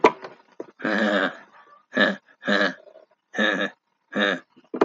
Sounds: Laughter